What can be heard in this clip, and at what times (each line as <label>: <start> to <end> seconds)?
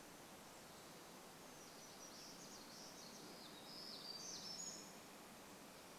warbler song: 0 to 6 seconds